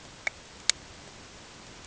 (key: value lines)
label: ambient
recorder: HydroMoth